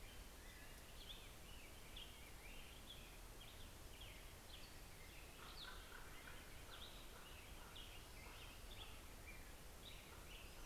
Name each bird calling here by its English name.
American Robin, Common Raven, Hermit Warbler